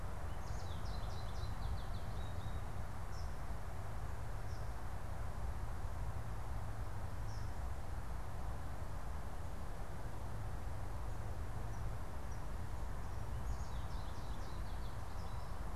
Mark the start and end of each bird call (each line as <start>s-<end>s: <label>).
0.0s-2.9s: American Goldfinch (Spinus tristis)
3.0s-12.7s: Eastern Kingbird (Tyrannus tyrannus)
13.3s-15.7s: American Goldfinch (Spinus tristis)